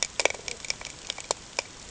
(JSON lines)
{"label": "ambient", "recorder": "HydroMoth"}